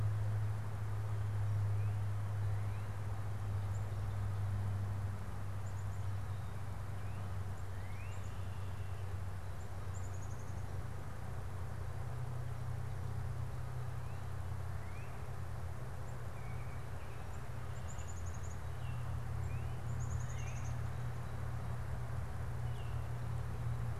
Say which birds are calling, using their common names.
Northern Cardinal, Black-capped Chickadee